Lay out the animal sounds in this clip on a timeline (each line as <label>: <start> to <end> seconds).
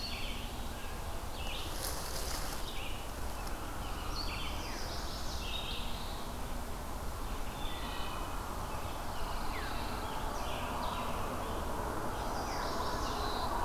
Red-eyed Vireo (Vireo olivaceus): 0.0 to 6.4 seconds
Chestnut-sided Warbler (Setophaga pensylvanica): 4.4 to 5.9 seconds
Wood Thrush (Hylocichla mustelina): 7.4 to 8.6 seconds
Pine Warbler (Setophaga pinus): 8.6 to 10.1 seconds
Scarlet Tanager (Piranga olivacea): 8.7 to 12.0 seconds
Chestnut-sided Warbler (Setophaga pensylvanica): 12.1 to 13.6 seconds